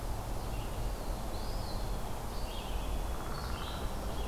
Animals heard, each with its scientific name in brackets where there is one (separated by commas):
Eastern Wood-Pewee (Contopus virens), Downy Woodpecker (Dryobates pubescens), Red-eyed Vireo (Vireo olivaceus)